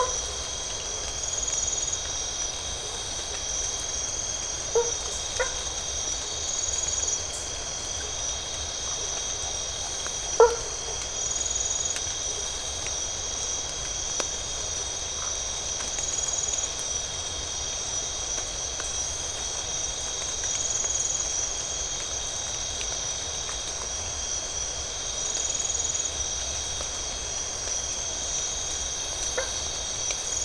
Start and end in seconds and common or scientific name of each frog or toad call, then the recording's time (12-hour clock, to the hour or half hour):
4.7	5.6	blacksmith tree frog
10.3	11.1	blacksmith tree frog
15.1	15.5	Phyllomedusa distincta
29.3	29.6	blacksmith tree frog
~2am